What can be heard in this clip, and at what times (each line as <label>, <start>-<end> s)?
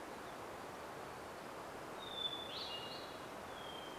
Hermit Warbler song, 0-2 s
Hermit Thrush song, 2-4 s